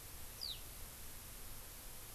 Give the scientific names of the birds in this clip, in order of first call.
Alauda arvensis